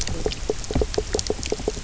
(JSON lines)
{"label": "biophony, knock croak", "recorder": "SoundTrap 300"}